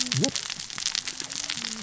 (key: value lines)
label: biophony, cascading saw
recorder: SoundTrap 600 or HydroMoth